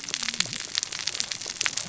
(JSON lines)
{"label": "biophony, cascading saw", "recorder": "SoundTrap 600 or HydroMoth"}